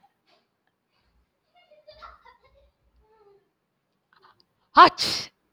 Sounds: Sneeze